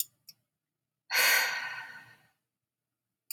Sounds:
Sigh